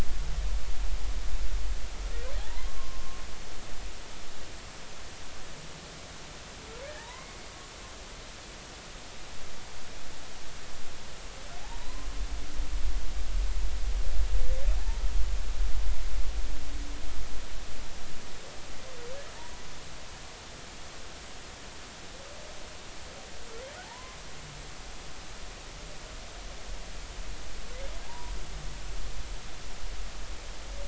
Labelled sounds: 2.7	3.0	humpback whale, 1.0 to 1.1 kHz
6.8	7.4	humpback whale, 0.80 to 2.2 kHz
11.6	12.1	humpback whale, 0.80 to 1.1 kHz
14.8	15.0	humpback whale, 0.80 to 0.96 kHz
23.8	24.2	humpback whale, 0.80 to 1.1 kHz
28.0	28.3	humpback whale, 0.80 to 1.0 kHz

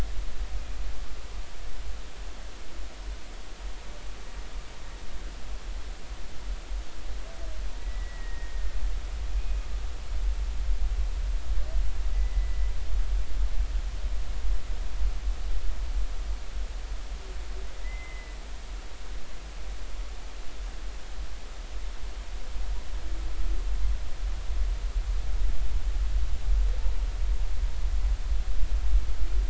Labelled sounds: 7.8	8.8	humpback whale, 1.8 to 2.0 kHz
9.4	9.6	humpback whale, 2.5 to 2.6 kHz
12.1	12.7	humpback whale, 1.9 to 2.1 kHz
17.8	18.4	humpback whale, 1.9 to 2.1 kHz

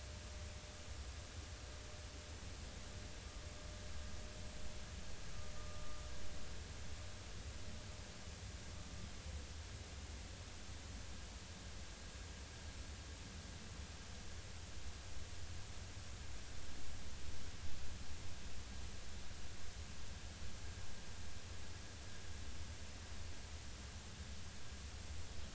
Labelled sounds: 6.6	6.8	vessel noise, 1.2 to 1.3 kHz

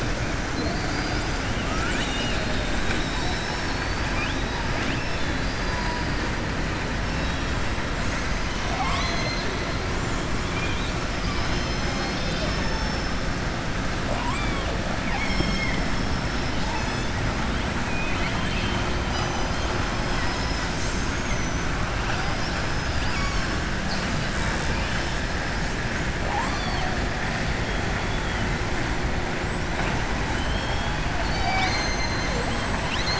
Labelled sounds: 0.5	1.4	killer whale, southern resident, 4.1 to 5.1 kHz
4.7	6.1	killer whale, southern resident, 1.8 to 5.4 kHz
8.4	9.5	killer whale, southern resident, 0.70 to 7.8 kHz
10.4	11.0	killer whale, southern resident, 2.3 to 4.5 kHz
14.0	14.7	killer whale, southern resident, 0.56 to 3.6 kHz
15.0	15.8	killer whale, southern resident, 1.0 to 7.5 kHz
17.8	18.8	killer whale, southern resident, 1.3 to 4.4 kHz
30.3	31.0	killer whale, southern resident, 2.5 to 3.9 kHz

